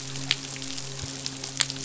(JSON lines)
{"label": "biophony, midshipman", "recorder": "SoundTrap 500"}